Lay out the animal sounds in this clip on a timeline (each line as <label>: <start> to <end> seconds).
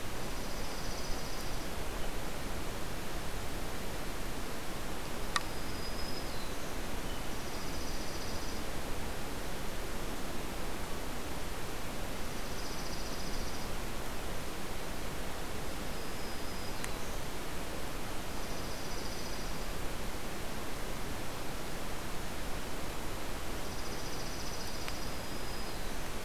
Dark-eyed Junco (Junco hyemalis): 0.0 to 1.8 seconds
Black-throated Green Warbler (Setophaga virens): 5.3 to 6.8 seconds
Dark-eyed Junco (Junco hyemalis): 7.2 to 8.7 seconds
Dark-eyed Junco (Junco hyemalis): 12.2 to 13.8 seconds
Black-throated Green Warbler (Setophaga virens): 15.7 to 17.2 seconds
Dark-eyed Junco (Junco hyemalis): 18.3 to 19.7 seconds
Dark-eyed Junco (Junco hyemalis): 23.5 to 25.1 seconds
Black-throated Green Warbler (Setophaga virens): 24.7 to 26.2 seconds